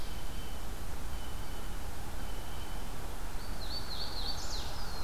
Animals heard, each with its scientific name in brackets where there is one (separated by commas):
Black-throated Blue Warbler (Setophaga caerulescens), Blue Jay (Cyanocitta cristata), Hooded Warbler (Setophaga citrina)